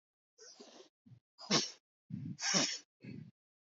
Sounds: Sniff